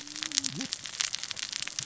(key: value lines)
label: biophony, cascading saw
recorder: SoundTrap 600 or HydroMoth